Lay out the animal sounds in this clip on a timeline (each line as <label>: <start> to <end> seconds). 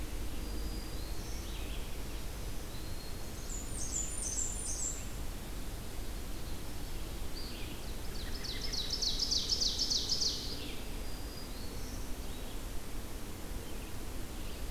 Red-eyed Vireo (Vireo olivaceus): 0.0 to 4.2 seconds
Black-throated Green Warbler (Setophaga virens): 0.0 to 3.5 seconds
Blackburnian Warbler (Setophaga fusca): 3.2 to 5.2 seconds
Red-eyed Vireo (Vireo olivaceus): 7.2 to 14.7 seconds
Ovenbird (Seiurus aurocapilla): 8.0 to 10.7 seconds
American Robin (Turdus migratorius): 8.1 to 8.9 seconds
Black-throated Green Warbler (Setophaga virens): 10.8 to 12.2 seconds